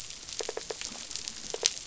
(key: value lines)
label: biophony
recorder: SoundTrap 500